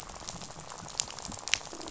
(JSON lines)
{"label": "biophony, rattle", "recorder": "SoundTrap 500"}